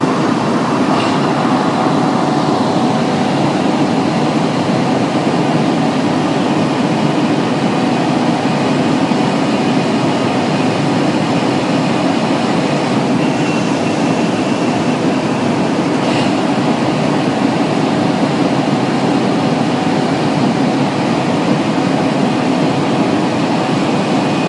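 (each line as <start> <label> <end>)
0.0 An air conditioner is running continuously at a strong level. 24.5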